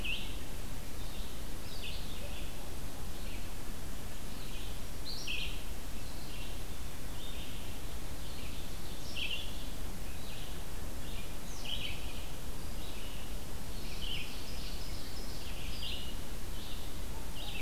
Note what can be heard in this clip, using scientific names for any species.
Vireo olivaceus, Seiurus aurocapilla